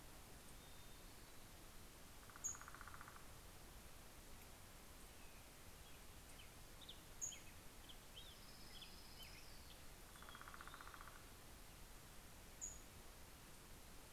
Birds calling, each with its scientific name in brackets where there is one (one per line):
Orange-crowned Warbler (Leiothlypis celata)
Pacific-slope Flycatcher (Empidonax difficilis)
Northern Flicker (Colaptes auratus)
Black-headed Grosbeak (Pheucticus melanocephalus)
Hermit Thrush (Catharus guttatus)